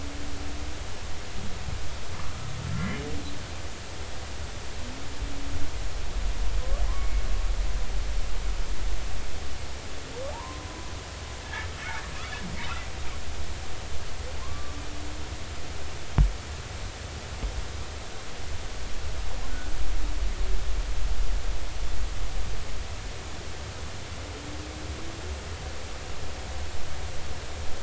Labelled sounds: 2.8	3.0	humpback whale, 1.9 to 2.2 kHz
7.0	7.2	humpback whale, 2.1 to 2.3 kHz
10.3	10.7	humpback whale, 0.80 to 1.1 kHz
12.1	12.5	humpback whale, 2.5 to 3.0 kHz
14.4	14.8	humpback whale, 0.99 to 1.2 kHz

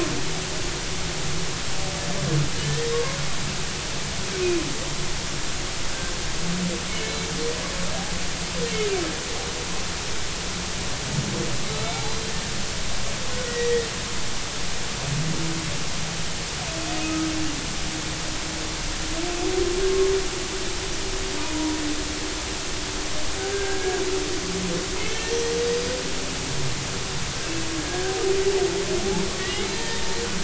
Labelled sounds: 2.6	3.2	humpback whale, 0.99 to 1.9 kHz
6.9	7.3	humpback whale, 2.1 to 2.3 kHz
11.7	12.0	humpback whale, 3.8 to 4.1 kHz
13.4	13.9	humpback whale, 1.8 to 2.0 kHz
21.4	21.8	humpback whale, 0.90 to 1.0 kHz
23.5	24.0	humpback whale, 1.5 to 1.7 kHz
25.0	25.7	humpback whale, 1.8 to 6.2 kHz
27.8	28.1	humpback whale, 1.5 to 1.7 kHz
29.4	30.0	humpback whale, 1.8 to 2.2 kHz

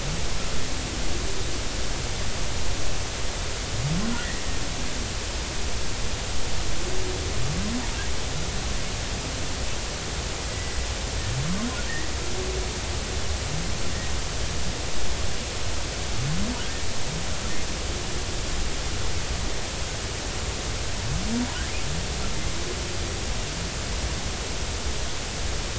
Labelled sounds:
10.5	10.8	killer whale, Bigg's (transient), 1.9 to 2.0 kHz

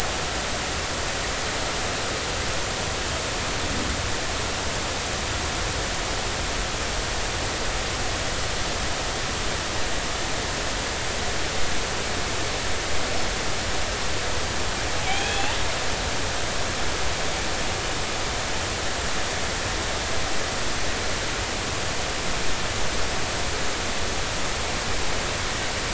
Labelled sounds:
15.1	15.5	killer whale, northern resident, G clan, 2.2 to 3.5 kHz

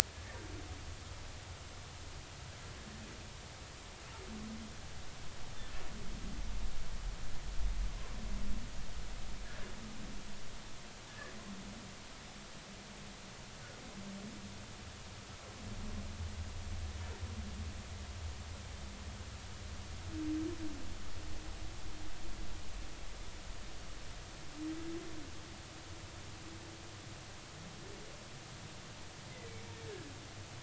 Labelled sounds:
11.1	11.3	humpback whale, 1.6 to 1.9 kHz

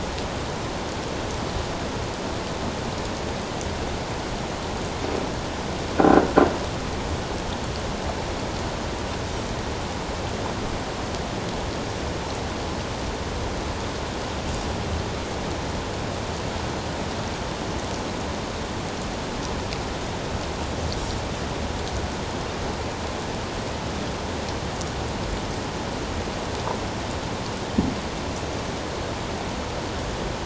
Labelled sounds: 6.0	6.2	croaking sound likely from a nearby submerged object, 1.3 to 1.6 kHz

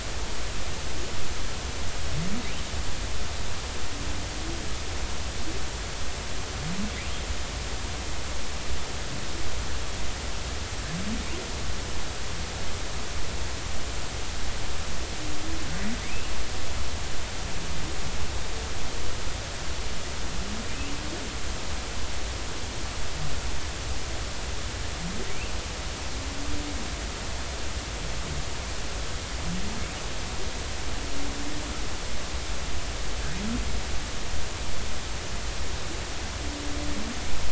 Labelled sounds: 16.1	16.3	humpback whale, 2.3 to 2.9 kHz

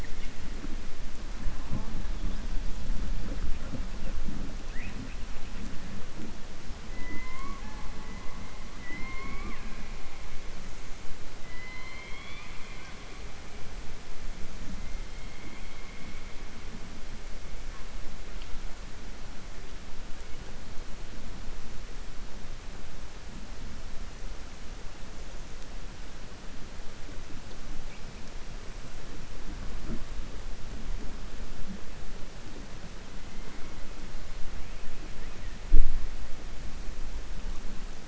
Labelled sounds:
11.4	12.9	killer whale, southern resident, 1.0 to 4.4 kHz

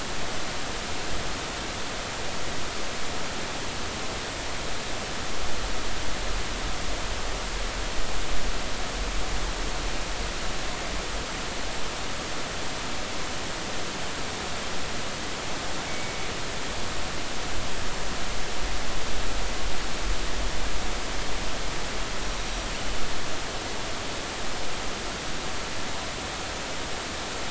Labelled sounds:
15.9	16.1	killer whale, northern resident, 2.1 to 2.3 kHz

